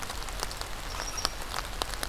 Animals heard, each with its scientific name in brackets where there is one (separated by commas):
unknown mammal